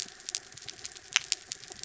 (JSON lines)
{"label": "anthrophony, mechanical", "recorder": "SoundTrap 300"}